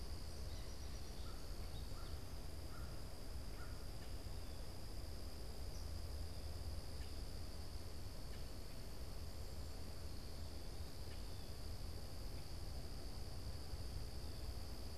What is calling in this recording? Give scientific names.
Melospiza melodia, Corvus brachyrhynchos